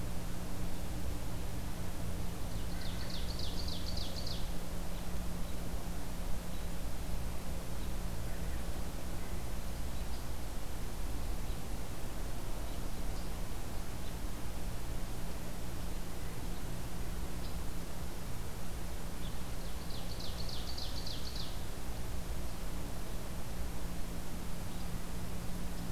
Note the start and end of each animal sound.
2.5s-4.5s: Ovenbird (Seiurus aurocapilla)
19.5s-21.6s: Ovenbird (Seiurus aurocapilla)

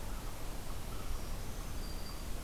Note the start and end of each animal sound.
0.0s-2.4s: Red-eyed Vireo (Vireo olivaceus)
0.8s-2.4s: Black-throated Green Warbler (Setophaga virens)

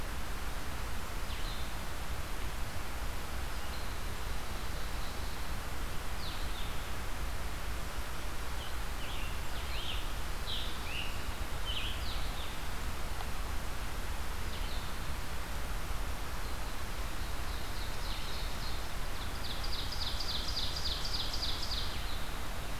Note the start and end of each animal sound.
0.0s-22.8s: Blue-headed Vireo (Vireo solitarius)
3.7s-5.5s: Ovenbird (Seiurus aurocapilla)
8.6s-12.1s: Scarlet Tanager (Piranga olivacea)
16.8s-22.7s: Ovenbird (Seiurus aurocapilla)

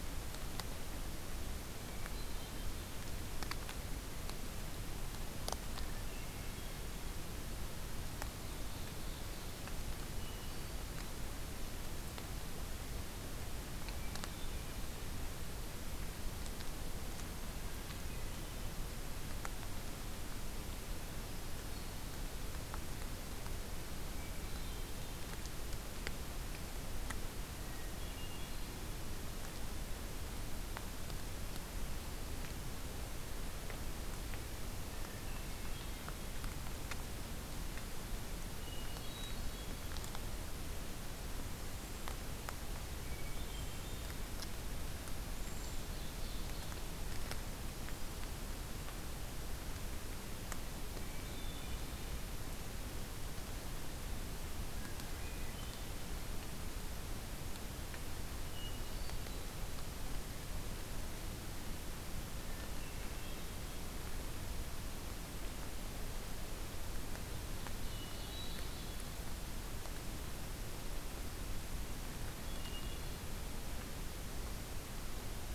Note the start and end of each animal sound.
1.7s-2.8s: Hermit Thrush (Catharus guttatus)
5.7s-6.9s: Hermit Thrush (Catharus guttatus)
8.2s-9.8s: Ovenbird (Seiurus aurocapilla)
10.1s-11.1s: Hermit Thrush (Catharus guttatus)
13.7s-14.9s: Hermit Thrush (Catharus guttatus)
24.1s-25.2s: Hermit Thrush (Catharus guttatus)
27.5s-28.8s: Hermit Thrush (Catharus guttatus)
35.0s-36.0s: Hermit Thrush (Catharus guttatus)
38.6s-40.0s: Hermit Thrush (Catharus guttatus)
43.0s-44.3s: Hermit Thrush (Catharus guttatus)
43.3s-44.1s: Cedar Waxwing (Bombycilla cedrorum)
45.1s-45.9s: Cedar Waxwing (Bombycilla cedrorum)
45.4s-46.8s: Ovenbird (Seiurus aurocapilla)
50.9s-52.2s: Hermit Thrush (Catharus guttatus)
54.6s-55.9s: Hermit Thrush (Catharus guttatus)
58.4s-59.6s: Hermit Thrush (Catharus guttatus)
62.4s-63.8s: Hermit Thrush (Catharus guttatus)
67.6s-69.1s: Ovenbird (Seiurus aurocapilla)
67.8s-69.1s: Hermit Thrush (Catharus guttatus)
72.3s-73.3s: Hermit Thrush (Catharus guttatus)

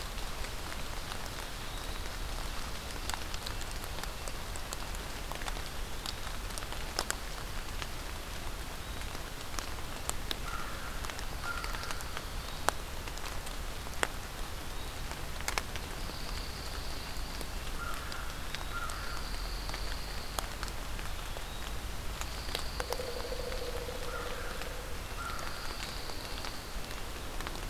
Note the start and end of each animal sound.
1.3s-2.2s: Eastern Wood-Pewee (Contopus virens)
2.9s-4.6s: Red-breasted Nuthatch (Sitta canadensis)
5.4s-6.2s: Eastern Wood-Pewee (Contopus virens)
10.3s-12.3s: American Crow (Corvus brachyrhynchos)
11.2s-12.8s: Pine Warbler (Setophaga pinus)
14.4s-15.0s: Eastern Wood-Pewee (Contopus virens)
15.8s-17.6s: Pine Warbler (Setophaga pinus)
17.7s-19.4s: American Crow (Corvus brachyrhynchos)
18.1s-18.9s: Eastern Wood-Pewee (Contopus virens)
18.7s-20.6s: Pine Warbler (Setophaga pinus)
20.7s-21.8s: Eastern Wood-Pewee (Contopus virens)
22.1s-23.9s: Pine Warbler (Setophaga pinus)
22.7s-25.1s: Pileated Woodpecker (Dryocopus pileatus)
23.9s-25.9s: American Crow (Corvus brachyrhynchos)
25.2s-26.8s: Pine Warbler (Setophaga pinus)

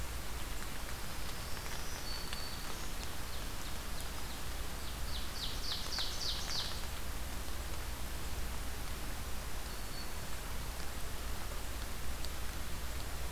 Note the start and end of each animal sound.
1.2s-3.0s: Black-throated Green Warbler (Setophaga virens)
2.6s-6.9s: Ovenbird (Seiurus aurocapilla)
9.0s-10.5s: Black-throated Green Warbler (Setophaga virens)

